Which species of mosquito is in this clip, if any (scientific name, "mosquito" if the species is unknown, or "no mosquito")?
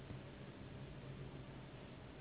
Anopheles gambiae s.s.